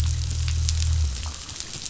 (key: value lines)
label: anthrophony, boat engine
recorder: SoundTrap 500